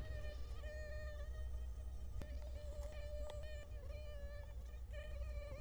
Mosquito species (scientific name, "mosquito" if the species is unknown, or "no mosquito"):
Culex quinquefasciatus